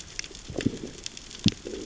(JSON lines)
{"label": "biophony, growl", "recorder": "SoundTrap 600 or HydroMoth"}